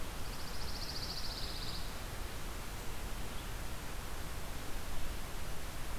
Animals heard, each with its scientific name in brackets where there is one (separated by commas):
Pine Warbler (Setophaga pinus)